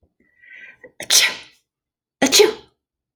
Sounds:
Sneeze